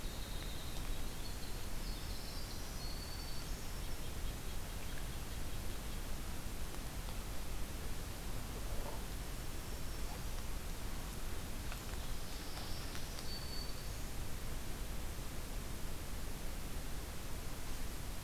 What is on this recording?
Winter Wren, Black-throated Green Warbler, Red-breasted Nuthatch